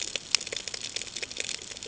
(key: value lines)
label: ambient
recorder: HydroMoth